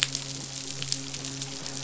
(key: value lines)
label: biophony, midshipman
recorder: SoundTrap 500